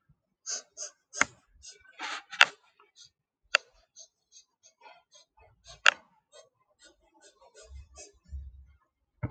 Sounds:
Sniff